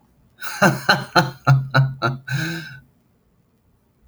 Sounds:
Laughter